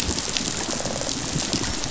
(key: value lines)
label: biophony, rattle response
recorder: SoundTrap 500